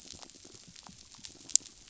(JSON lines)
{"label": "biophony", "recorder": "SoundTrap 500"}